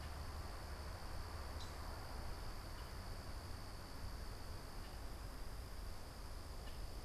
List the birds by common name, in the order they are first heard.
Common Grackle, Downy Woodpecker